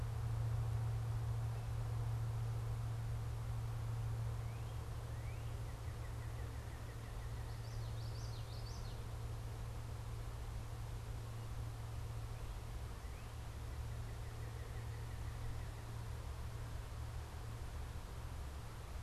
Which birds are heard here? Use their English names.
Northern Cardinal, Common Yellowthroat